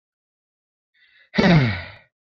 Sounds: Sigh